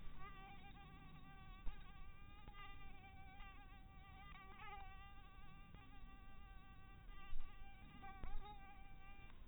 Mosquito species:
mosquito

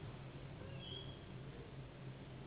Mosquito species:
Anopheles gambiae s.s.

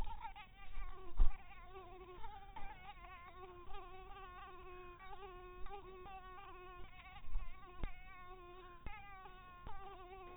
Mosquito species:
mosquito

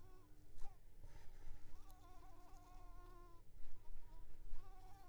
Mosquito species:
Anopheles coustani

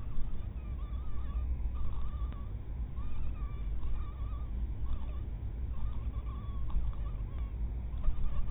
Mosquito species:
mosquito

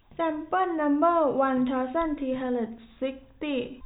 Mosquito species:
no mosquito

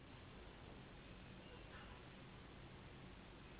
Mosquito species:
Anopheles gambiae s.s.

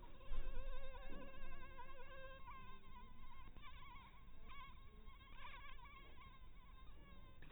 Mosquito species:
mosquito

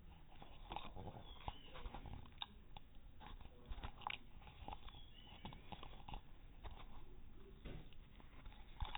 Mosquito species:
no mosquito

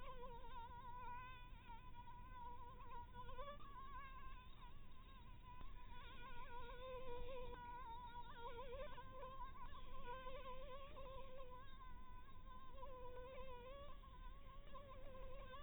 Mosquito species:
Anopheles dirus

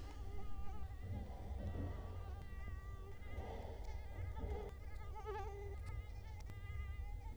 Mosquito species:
Culex quinquefasciatus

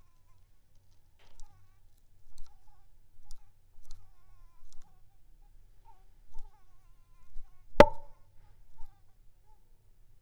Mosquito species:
Anopheles arabiensis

